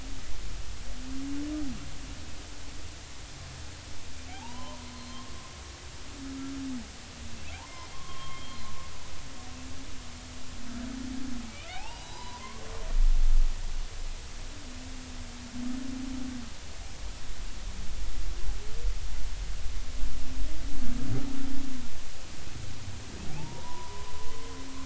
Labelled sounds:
4.3	4.9	humpback whale, 0.80 to 3.2 kHz
7.4	8.6	humpback whale, 0.80 to 3.3 kHz
11.7	12.6	humpback whale, 0.80 to 5.0 kHz
23.4	24.1	humpback whale, 0.80 to 1.1 kHz

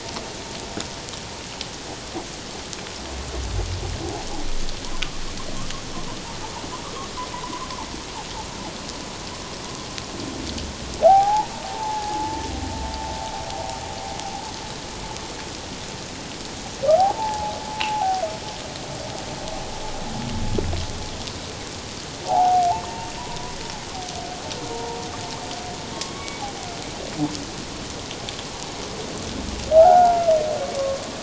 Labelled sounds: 11.0	12.4	humpback whale, 0.78 to 1.0 kHz
16.9	18.2	humpback whale, 0.78 to 1.0 kHz
22.2	23.6	humpback whale, 0.78 to 1.2 kHz
24.7	25.0	humpback whale, 0.88 to 1.0 kHz
25.9	26.4	humpback whale, 1.0 to 2.3 kHz
29.7	31.0	humpback whale, 0.78 to 1.6 kHz

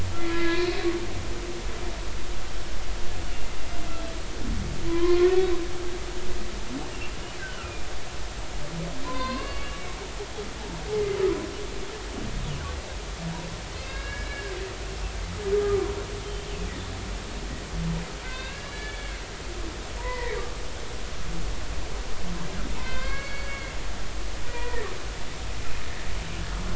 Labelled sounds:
0.2	0.7	humpback whale, 0.96 to 2.1 kHz
4.9	5.4	humpback whale, 0.96 to 1.2 kHz
7.4	7.9	humpback whale, 1.3 to 2.5 kHz
9.0	9.7	humpback whale, 0.96 to 4.8 kHz
13.7	14.5	humpback whale, 1.6 to 5.0 kHz
15.5	15.9	humpback whale, 0.93 to 1.3 kHz
18.2	19.2	humpback whale, 1.5 to 4.0 kHz
20.0	20.4	humpback whale, 0.90 to 2.1 kHz
22.8	24.9	humpback whale, 0.90 to 4.9 kHz

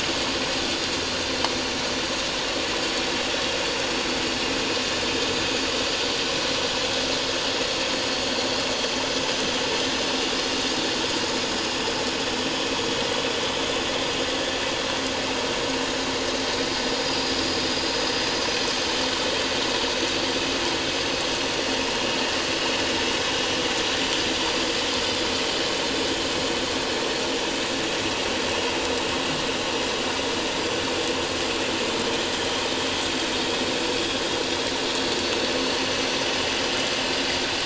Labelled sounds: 16.6	17.3	vessel noise, 4.7 to 5.0 kHz
35.9	36.2	vessel noise, 6.0 to 6.1 kHz

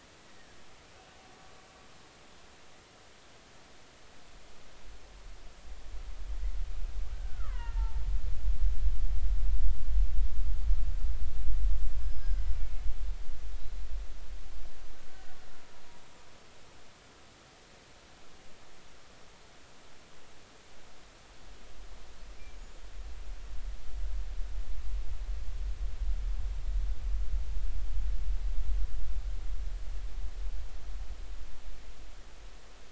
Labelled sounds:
0.2	0.6	killer whale, Bigg's (transient), 1.6 to 2.0 kHz
7.1	8.0	killer whale, Bigg's (transient), 0.83 to 2.9 kHz
12.0	12.9	killer whale, Bigg's (transient), 1.4 to 5.2 kHz
13.5	13.8	killer whale, Bigg's (transient), 3.7 to 4.1 kHz

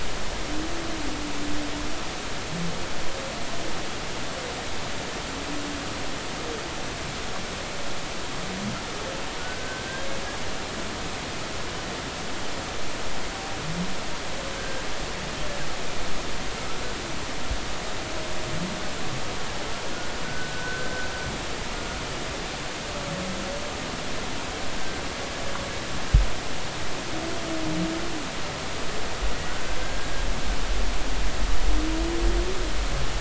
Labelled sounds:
9.4	10.1	humpback whale, 1.4 to 1.7 kHz
14.6	14.8	humpback whale, 1.5 to 1.7 kHz
20.2	20.9	humpback whale, 1.4 to 1.6 kHz
29.8	30.1	humpback whale, 1.5 to 1.7 kHz

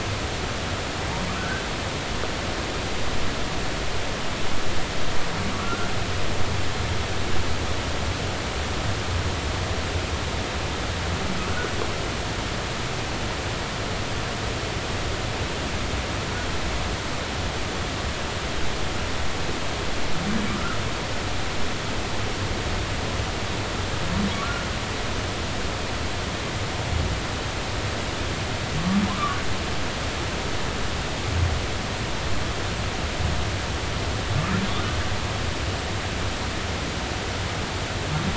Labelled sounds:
1.4	1.6	humpback whale, 1.3 to 1.6 kHz
5.5	5.9	humpback whale, 1.1 to 1.6 kHz
11.5	11.7	humpback whale, 1.3 to 1.5 kHz
20.5	20.8	humpback whale, 1.2 to 1.5 kHz
24.3	24.6	humpback whale, 1.1 to 1.5 kHz
29.1	29.4	humpback whale, 0.99 to 1.2 kHz

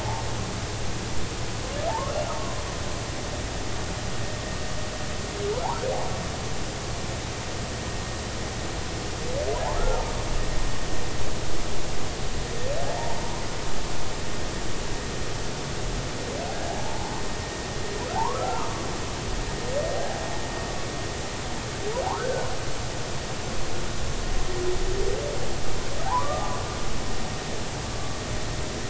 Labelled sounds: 1.9	2.1	humpback whale, 0.80 to 1.2 kHz
9.9	10.1	humpback whale, 0.83 to 0.96 kHz
13.2	13.4	humpback whale, 0.86 to 1.1 kHz
18.1	18.7	humpback whale, 0.80 to 1.4 kHz
22.1	22.5	humpback whale, 1.2 to 1.7 kHz
26.0	26.6	humpback whale, 0.80 to 1.2 kHz

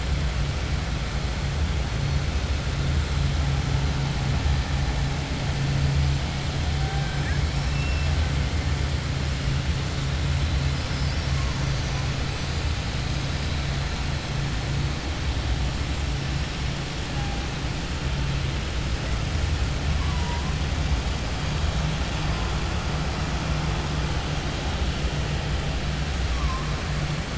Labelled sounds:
10.8	12.0	killer whale, 4.6 to 6.5 kHz

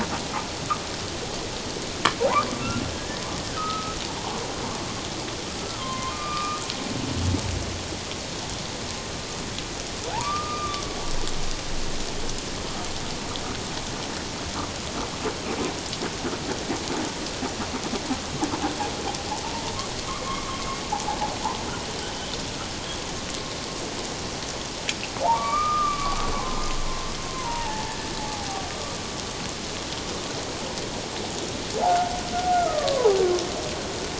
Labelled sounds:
2.9	4.0	humpback whale, 1.2 to 1.9 kHz
5.8	6.6	humpback whale, 0.97 to 2.5 kHz
10.2	11.0	humpback whale, 1.1 to 2.4 kHz
20.2	20.6	humpback whale, 1.0 to 1.3 kHz
25.2	28.6	humpback whale, 0.78 to 2.4 kHz
31.9	32.2	humpback whale, 1.4 to 1.5 kHz
32.5	33.2	humpback whale, 0.78 to 1.5 kHz

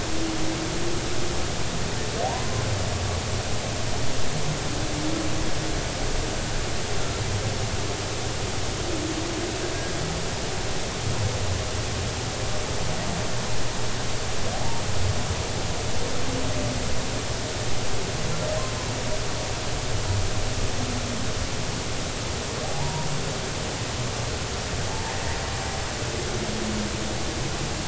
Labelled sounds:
2.2	2.6	humpback whale, 0.80 to 1.1 kHz
14.5	14.8	humpback whale, 0.80 to 0.96 kHz
22.6	23.1	humpback whale, 0.80 to 0.99 kHz

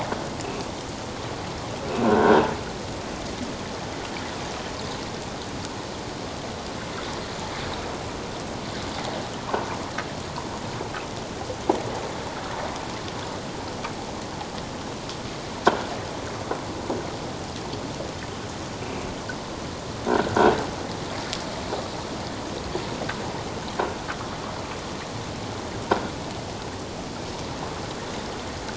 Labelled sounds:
2.0	2.4	croaking sound likely from a nearby submerged object, 1.3 to 1.7 kHz
20.1	20.4	croaking sound likely from a nearby submerged object, 1.3 to 1.6 kHz

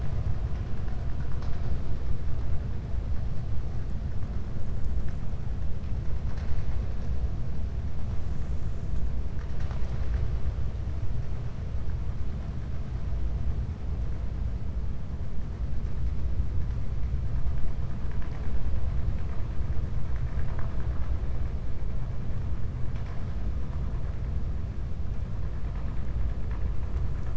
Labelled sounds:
20.0	21.1	vessel noise, 0.64 to 2.7 kHz

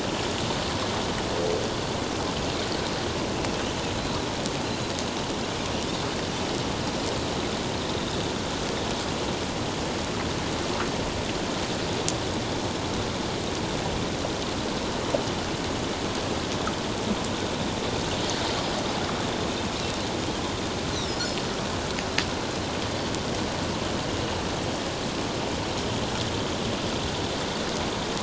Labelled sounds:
20.9	21.2	Pacific white-sided dolphin, 5.0 to 6.3 kHz

